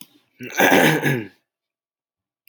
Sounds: Throat clearing